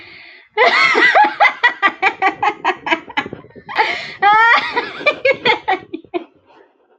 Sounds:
Laughter